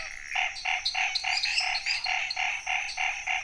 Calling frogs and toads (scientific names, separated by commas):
Boana raniceps, Dendropsophus minutus, Dendropsophus nanus